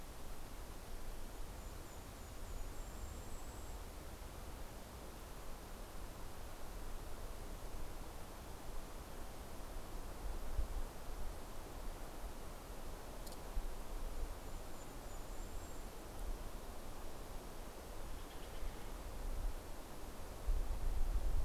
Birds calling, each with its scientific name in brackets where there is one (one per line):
Steller's Jay (Cyanocitta stelleri)
Golden-crowned Kinglet (Regulus satrapa)